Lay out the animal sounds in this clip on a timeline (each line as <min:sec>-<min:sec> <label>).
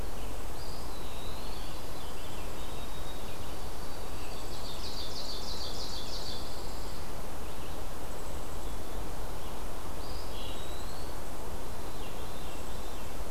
0:00.4-0:01.9 Eastern Wood-Pewee (Contopus virens)
0:01.1-0:03.7 Rose-breasted Grosbeak (Pheucticus ludovicianus)
0:01.5-0:02.7 Pine Warbler (Setophaga pinus)
0:02.1-0:02.8 Blackpoll Warbler (Setophaga striata)
0:02.4-0:05.6 White-throated Sparrow (Zonotrichia albicollis)
0:03.9-0:04.8 Blackpoll Warbler (Setophaga striata)
0:04.1-0:06.5 Ovenbird (Seiurus aurocapilla)
0:05.4-0:07.1 Pine Warbler (Setophaga pinus)
0:06.2-0:07.0 Blackpoll Warbler (Setophaga striata)
0:08.0-0:08.8 Blackpoll Warbler (Setophaga striata)
0:10.0-0:11.1 Eastern Wood-Pewee (Contopus virens)
0:10.1-0:11.1 Blackpoll Warbler (Setophaga striata)
0:11.6-0:13.0 Veery (Catharus fuscescens)
0:12.4-0:13.3 Blackpoll Warbler (Setophaga striata)